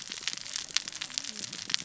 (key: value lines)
label: biophony, cascading saw
recorder: SoundTrap 600 or HydroMoth